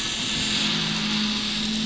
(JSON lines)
{"label": "anthrophony, boat engine", "recorder": "SoundTrap 500"}